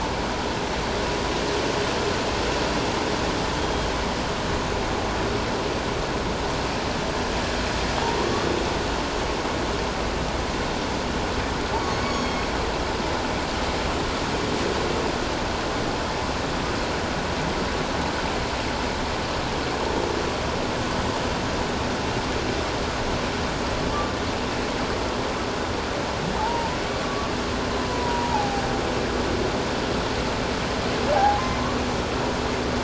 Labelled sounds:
3.6	3.9	humpback whale, 3.2 to 3.3 kHz
12.0	12.4	humpback whale, 3.2 to 6.8 kHz
26.4	27.3	humpback whale, 0.81 to 1.2 kHz
27.9	28.6	humpback whale, 0.78 to 1.0 kHz
31.1	31.4	humpback whale, 0.78 to 0.91 kHz

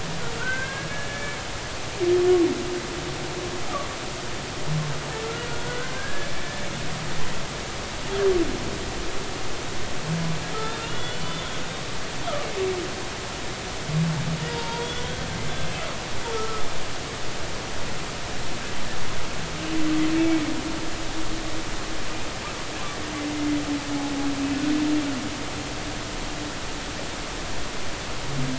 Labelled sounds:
0.4	1.4	humpback whale, 1.4 to 2.3 kHz
5.5	6.7	humpback whale, 1.4 to 1.8 kHz
10.6	11.5	humpback whale, 1.4 to 3.8 kHz
14.5	14.9	humpback whale, 0.86 to 4.8 kHz
16.3	16.7	humpback whale, 1.2 to 1.4 kHz
20.1	20.4	humpback whale, 2.2 to 2.3 kHz

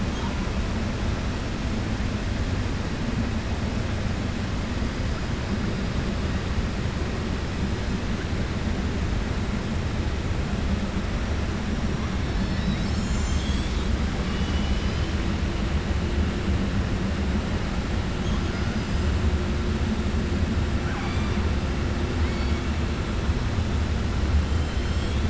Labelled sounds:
20.8	21.3	killer whale, 0.78 to 5.6 kHz
24.8	25.2	killer whale, 7.3 to 8.0 kHz

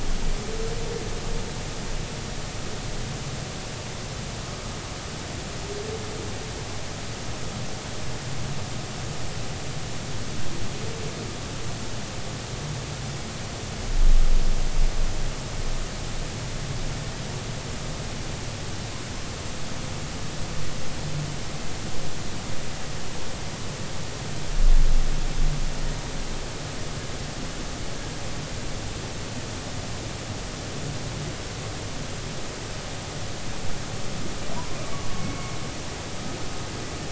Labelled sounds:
35.2	35.5	humpback whale, 2.1 to 2.2 kHz

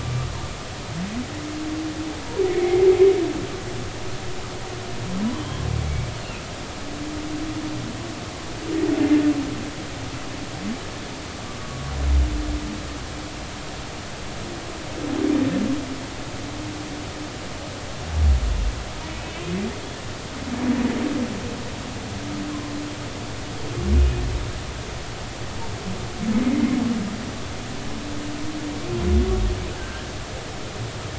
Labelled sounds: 2.5	2.9	humpback whale, 2.0 to 2.3 kHz
5.3	6.1	humpback whale, 2.2 to 3.4 kHz
11.6	11.9	humpback whale, 1.1 to 1.2 kHz
19.2	19.5	humpback whale, 2.5 to 2.8 kHz
24.0	24.2	humpback whale, 2.46 to 2.53 kHz
26.4	26.8	humpback whale, 2.0 to 2.2 kHz
29.8	30.1	humpback whale, 1.5 to 1.8 kHz

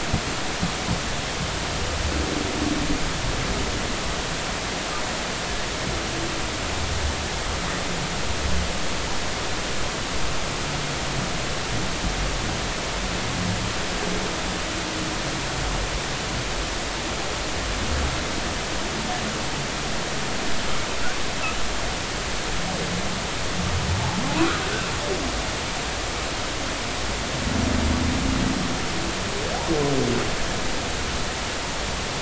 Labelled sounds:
24.3	24.6	humpback whale, 0.80 to 1.5 kHz

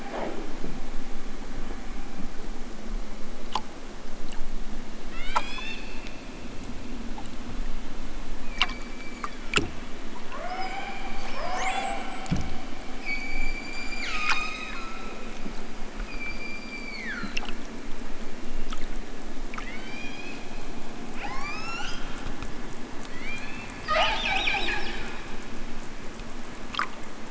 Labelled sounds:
5.0	6.0	killer whale, southern Alaska resident, 1.0 to 8.0 kHz
8.4	9.7	killer whale, southern Alaska resident, 0.92 to 5.0 kHz
10.2	12.3	killer whale, southern Alaska resident, 0.23 to 8.0 kHz
12.9	15.5	killer whale, southern Alaska resident, 0.73 to 8.0 kHz
16.0	17.6	killer whale, southern Alaska resident, 0.87 to 5.2 kHz
19.5	20.6	killer whale, southern Alaska resident, 0.96 to 8.0 kHz
21.2	22.0	killer whale, southern Alaska resident, 0.55 to 8.0 kHz
23.0	23.8	killer whale, southern Alaska resident, 1.3 to 5.4 kHz

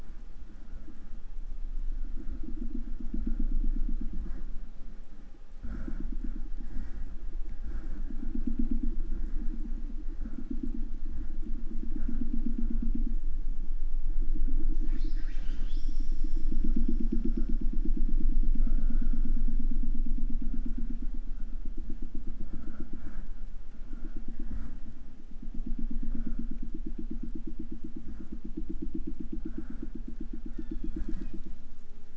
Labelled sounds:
14.8	16.4	killer whale, 0.36 to 8.0 kHz
30.5	31.5	killer whale, southern resident, J pod, call S01, 0.44 to 7.8 kHz

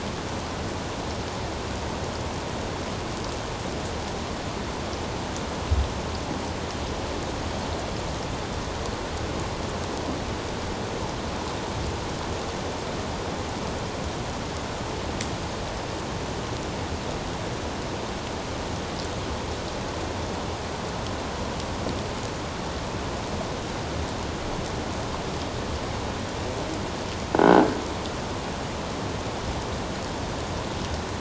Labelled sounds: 27.4	27.7	croaking sound likely from a nearby submerged object, 1.4 to 1.6 kHz

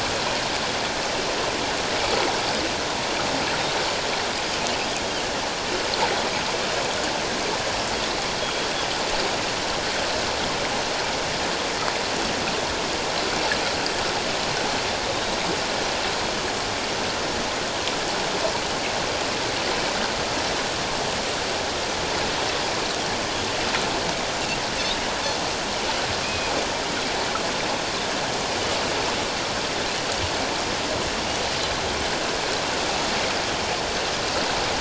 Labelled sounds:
8.4	8.7	Pacific white-sided dolphin, 3.2 to 3.3 kHz
26.2	26.5	Pacific white-sided dolphin, 2.2 to 2.6 kHz

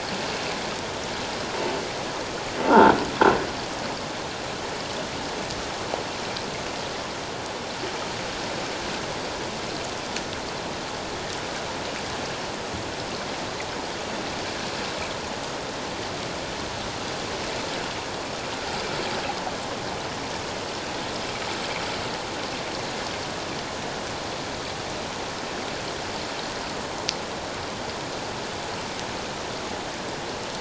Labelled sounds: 2.6	3.0	croaking sound likely from a nearby submerged object, 0.84 to 1.6 kHz

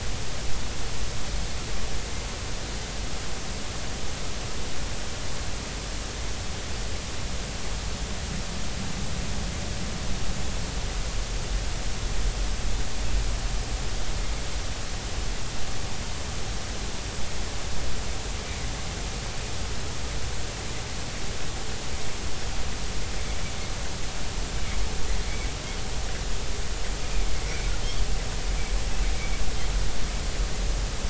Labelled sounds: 29.2	29.4	Pacific white-sided dolphin, 2.2 to 2.4 kHz

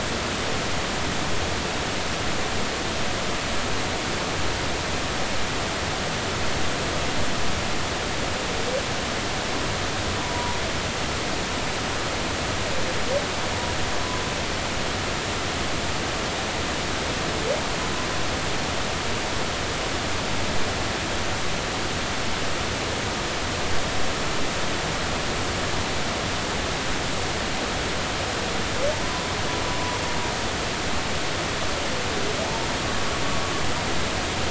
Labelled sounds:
10.2	10.6	humpback whale, 0.86 to 1.0 kHz
29.0	29.3	humpback whale, 0.96 to 1.1 kHz

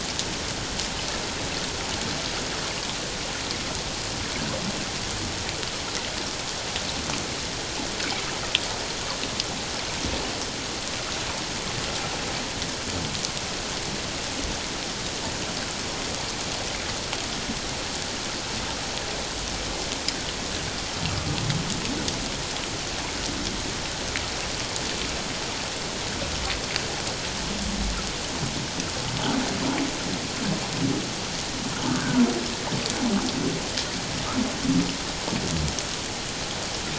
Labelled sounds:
32.0	32.2	humpback whale, 1.3 to 1.7 kHz

